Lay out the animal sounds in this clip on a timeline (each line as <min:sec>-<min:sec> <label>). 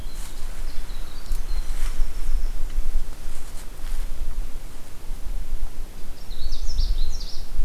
0:00.0-0:02.8 Winter Wren (Troglodytes hiemalis)
0:05.9-0:07.6 Canada Warbler (Cardellina canadensis)